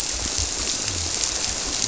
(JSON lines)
{"label": "biophony", "recorder": "SoundTrap 300"}